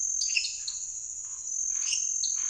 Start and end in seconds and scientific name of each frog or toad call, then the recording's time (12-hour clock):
0.2	0.7	Dendropsophus minutus
0.4	0.8	Dendropsophus nanus
0.6	2.4	Scinax fuscovarius
1.8	2.4	Dendropsophus minutus
8:00pm